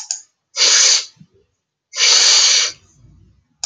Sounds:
Sniff